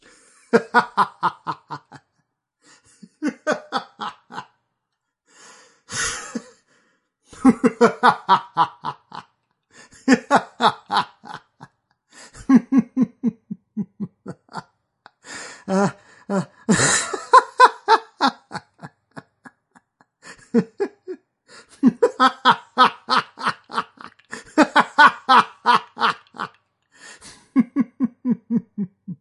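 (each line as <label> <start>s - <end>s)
A man laughs loudly. 0.4s - 2.2s
A man laughs loudly. 3.0s - 4.4s
A man laughs loudly in a short burst. 5.8s - 6.4s
A man laughs loudly. 7.3s - 11.4s
A man laughing loudly, fading away. 12.2s - 14.7s
A man laughs loudly. 15.3s - 19.2s
A man laughs loudly. 20.3s - 29.2s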